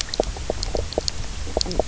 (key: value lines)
label: biophony, knock croak
recorder: SoundTrap 300